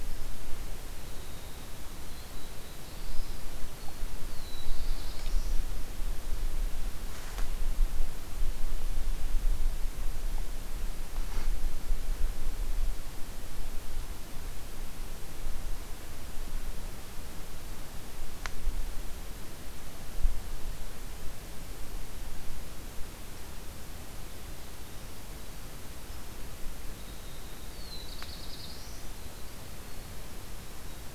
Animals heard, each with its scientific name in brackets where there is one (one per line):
Black-throated Blue Warbler (Setophaga caerulescens)
Winter Wren (Troglodytes hiemalis)